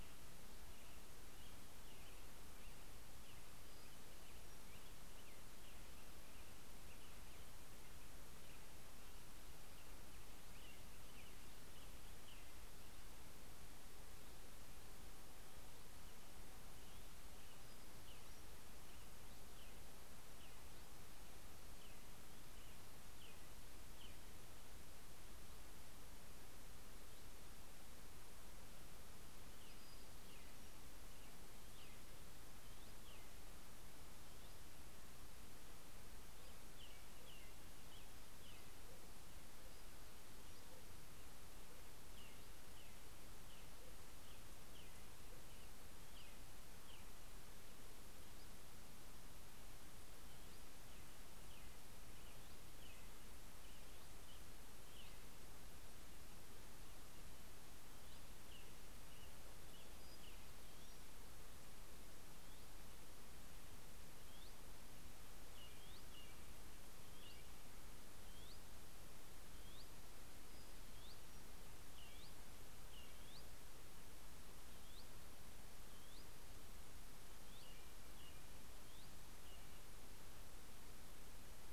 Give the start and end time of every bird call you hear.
0.0s-13.3s: American Robin (Turdus migratorius)
2.9s-5.6s: Pacific-slope Flycatcher (Empidonax difficilis)
15.5s-25.6s: American Robin (Turdus migratorius)
28.2s-34.3s: American Robin (Turdus migratorius)
30.9s-37.1s: Hutton's Vireo (Vireo huttoni)
36.4s-39.2s: American Robin (Turdus migratorius)
39.1s-41.8s: Pacific-slope Flycatcher (Empidonax difficilis)
41.4s-47.4s: American Robin (Turdus migratorius)
45.6s-55.5s: Hutton's Vireo (Vireo huttoni)
50.3s-56.0s: American Robin (Turdus migratorius)
57.6s-62.9s: Hutton's Vireo (Vireo huttoni)
57.9s-61.0s: American Robin (Turdus migratorius)
59.4s-61.5s: Pacific-slope Flycatcher (Empidonax difficilis)
63.8s-79.4s: Hutton's Vireo (Vireo huttoni)
65.2s-68.3s: American Robin (Turdus migratorius)
71.5s-73.8s: American Robin (Turdus migratorius)
77.3s-80.5s: American Robin (Turdus migratorius)

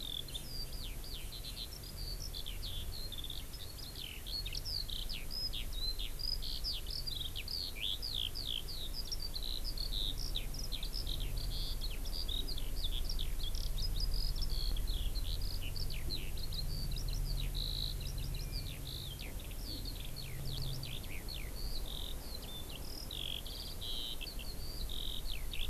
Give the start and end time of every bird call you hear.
0.0s-25.7s: Eurasian Skylark (Alauda arvensis)

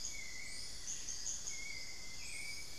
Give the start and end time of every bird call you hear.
0.0s-1.8s: Amazonian Barred-Woodcreeper (Dendrocolaptes certhia)
0.0s-2.8s: Hauxwell's Thrush (Turdus hauxwelli)
0.0s-2.8s: unidentified bird

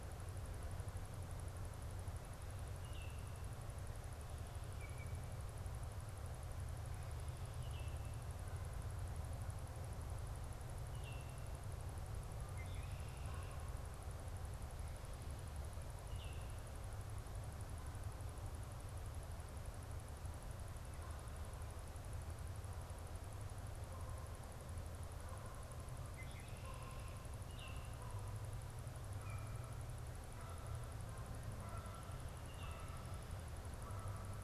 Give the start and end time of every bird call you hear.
2.6s-8.1s: Baltimore Oriole (Icterus galbula)
10.7s-11.4s: Baltimore Oriole (Icterus galbula)
12.4s-13.7s: Red-winged Blackbird (Agelaius phoeniceus)
16.0s-16.6s: Baltimore Oriole (Icterus galbula)
23.7s-34.4s: Canada Goose (Branta canadensis)

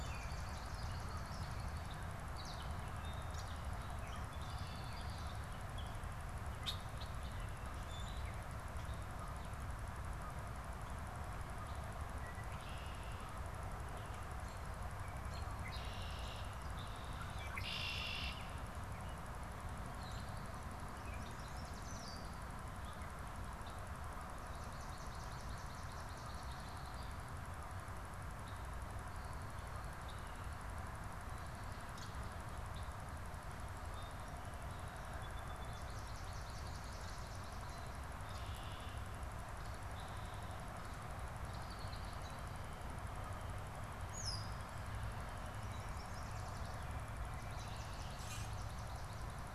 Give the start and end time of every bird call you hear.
0.0s-2.1s: Swamp Sparrow (Melospiza georgiana)
0.0s-5.8s: Gray Catbird (Dumetella carolinensis)
6.5s-7.2s: Red-winged Blackbird (Agelaius phoeniceus)
12.0s-13.5s: Red-winged Blackbird (Agelaius phoeniceus)
15.2s-18.7s: Red-winged Blackbird (Agelaius phoeniceus)
20.9s-22.4s: Yellow Warbler (Setophaga petechia)
21.8s-22.4s: Red-winged Blackbird (Agelaius phoeniceus)
24.2s-26.4s: Swamp Sparrow (Melospiza georgiana)
26.1s-27.2s: Red-winged Blackbird (Agelaius phoeniceus)
31.9s-32.2s: Red-winged Blackbird (Agelaius phoeniceus)
33.6s-36.1s: Song Sparrow (Melospiza melodia)
35.6s-38.0s: Swamp Sparrow (Melospiza georgiana)
38.1s-39.2s: Red-winged Blackbird (Agelaius phoeniceus)
39.5s-42.6s: Red-winged Blackbird (Agelaius phoeniceus)
44.0s-44.7s: Red-winged Blackbird (Agelaius phoeniceus)
45.1s-46.9s: Yellow Warbler (Setophaga petechia)
47.1s-49.5s: Swamp Sparrow (Melospiza georgiana)
48.1s-48.6s: Common Grackle (Quiscalus quiscula)

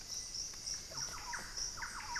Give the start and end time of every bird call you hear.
0.0s-2.2s: Black-faced Antthrush (Formicarius analis)
0.7s-2.2s: Thrush-like Wren (Campylorhynchus turdinus)

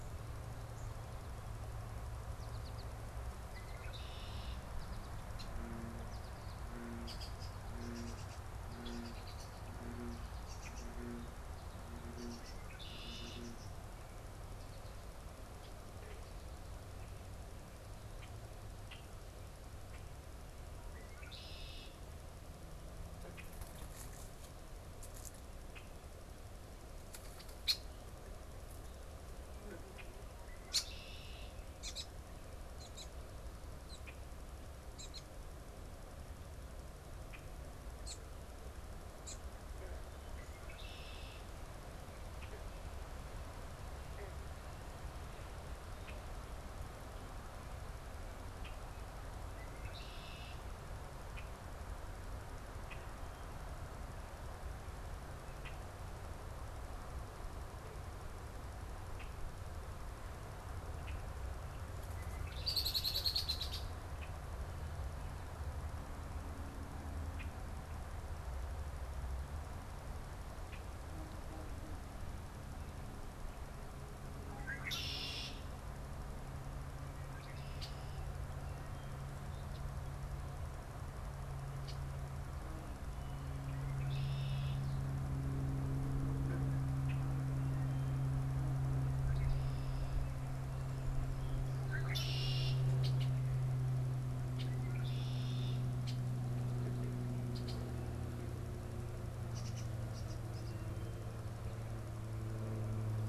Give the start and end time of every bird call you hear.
0.0s-38.3s: Red-winged Blackbird (Agelaius phoeniceus)
1.8s-14.3s: American Goldfinch (Spinus tristis)
39.1s-96.7s: Red-winged Blackbird (Agelaius phoeniceus)
97.3s-103.3s: Red-winged Blackbird (Agelaius phoeniceus)

